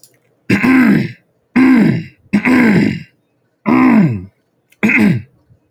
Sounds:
Throat clearing